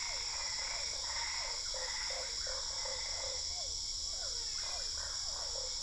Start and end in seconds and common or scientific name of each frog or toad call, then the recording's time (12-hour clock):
0.0	3.4	Boana albopunctata
0.0	5.8	Physalaemus cuvieri
1.8	3.4	Usina tree frog
4.2	5.1	brown-spotted dwarf frog
8:45pm